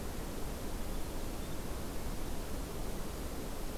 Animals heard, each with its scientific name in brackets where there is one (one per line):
Winter Wren (Troglodytes hiemalis)